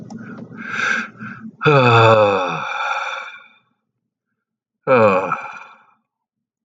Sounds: Sigh